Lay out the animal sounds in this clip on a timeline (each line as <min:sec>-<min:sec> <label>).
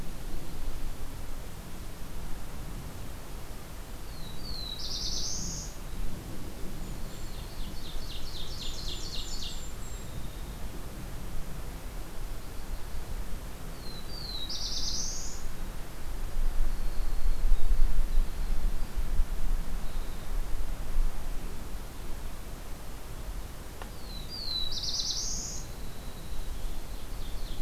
0:04.2-0:05.9 Black-throated Blue Warbler (Setophaga caerulescens)
0:05.3-0:11.0 Winter Wren (Troglodytes hiemalis)
0:06.8-0:07.5 Golden-crowned Kinglet (Regulus satrapa)
0:07.1-0:09.7 Ovenbird (Seiurus aurocapilla)
0:08.6-0:10.2 Golden-crowned Kinglet (Regulus satrapa)
0:13.7-0:15.5 Black-throated Blue Warbler (Setophaga caerulescens)
0:15.1-0:20.3 Winter Wren (Troglodytes hiemalis)
0:23.9-0:25.7 Black-throated Blue Warbler (Setophaga caerulescens)
0:24.7-0:27.6 Winter Wren (Troglodytes hiemalis)
0:26.4-0:27.6 Ovenbird (Seiurus aurocapilla)